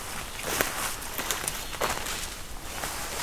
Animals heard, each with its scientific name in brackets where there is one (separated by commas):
Black-throated Green Warbler (Setophaga virens)